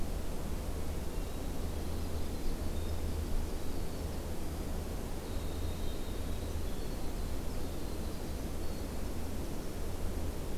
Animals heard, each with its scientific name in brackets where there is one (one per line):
Winter Wren (Troglodytes hiemalis)
Hermit Thrush (Catharus guttatus)